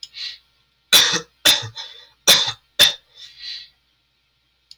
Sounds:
Cough